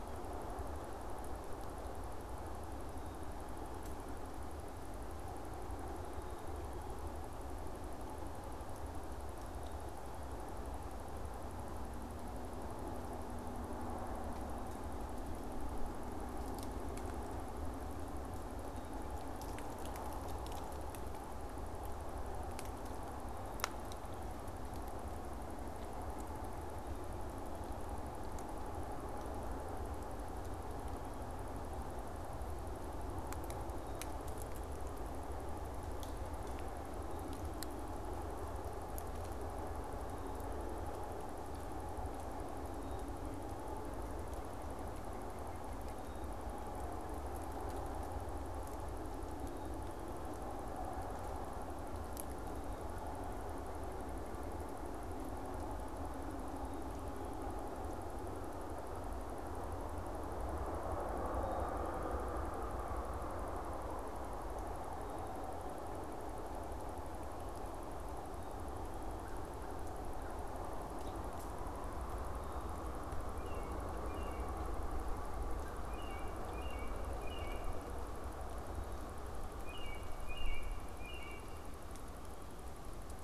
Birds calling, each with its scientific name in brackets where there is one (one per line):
American Robin (Turdus migratorius)
American Crow (Corvus brachyrhynchos)